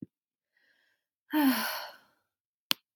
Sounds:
Sigh